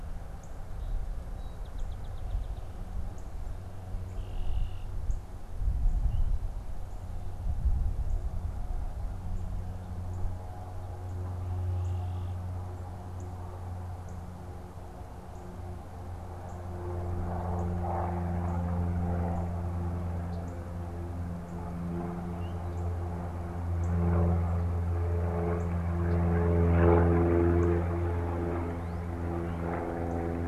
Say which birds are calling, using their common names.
Northern Cardinal, Song Sparrow, Red-winged Blackbird